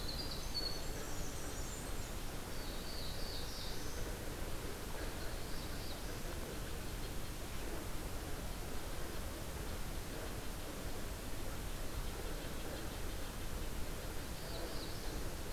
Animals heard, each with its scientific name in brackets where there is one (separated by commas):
Winter Wren (Troglodytes hiemalis), Black-throated Blue Warbler (Setophaga caerulescens), Red-breasted Nuthatch (Sitta canadensis)